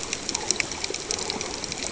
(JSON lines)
{"label": "ambient", "recorder": "HydroMoth"}